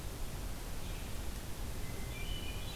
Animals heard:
Red-eyed Vireo (Vireo olivaceus), Hermit Thrush (Catharus guttatus)

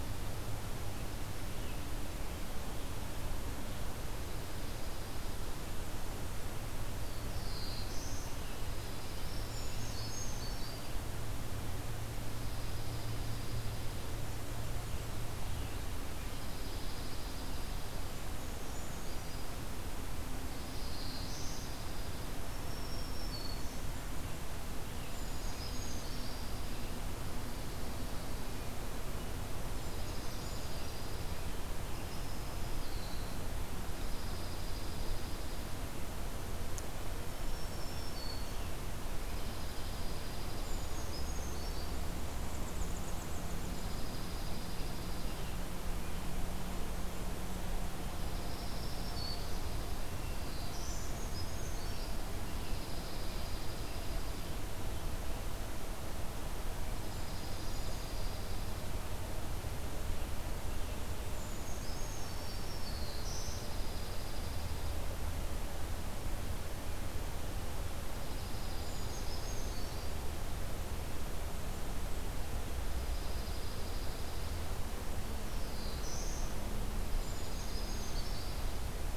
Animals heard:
Winter Wren (Troglodytes hiemalis), Black-throated Blue Warbler (Setophaga caerulescens), Black-throated Green Warbler (Setophaga virens), Brown Creeper (Certhia americana), Chipping Sparrow (Spizella passerina), Dark-eyed Junco (Junco hyemalis)

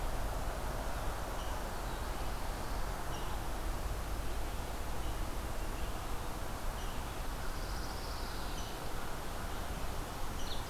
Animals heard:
Rose-breasted Grosbeak (Pheucticus ludovicianus), Pine Warbler (Setophaga pinus)

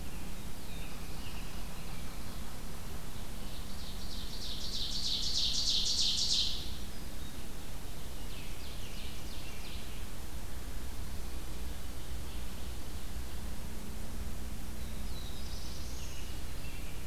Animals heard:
Black-throated Blue Warbler (Setophaga caerulescens), American Robin (Turdus migratorius), Ovenbird (Seiurus aurocapilla)

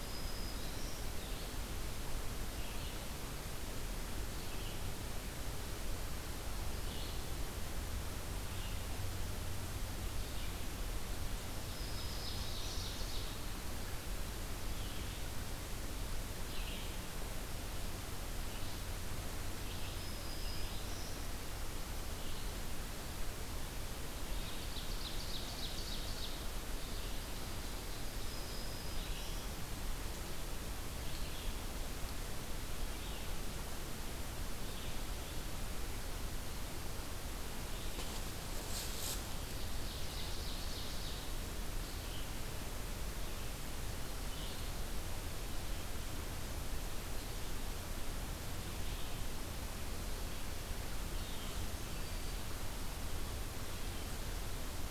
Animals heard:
Black-throated Green Warbler (Setophaga virens), Red-eyed Vireo (Vireo olivaceus), Ovenbird (Seiurus aurocapilla)

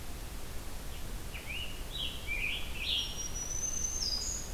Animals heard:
Black-throated Green Warbler (Setophaga virens), Scarlet Tanager (Piranga olivacea), Winter Wren (Troglodytes hiemalis)

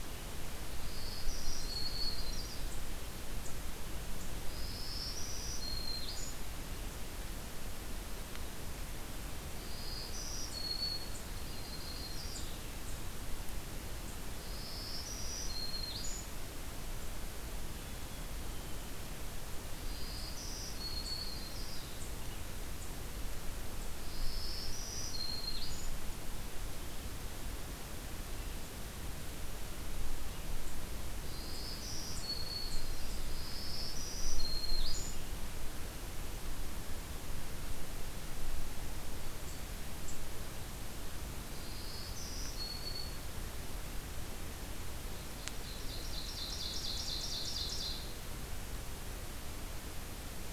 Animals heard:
Ovenbird (Seiurus aurocapilla), Yellow-rumped Warbler (Setophaga coronata), Black-throated Green Warbler (Setophaga virens), Black-capped Chickadee (Poecile atricapillus)

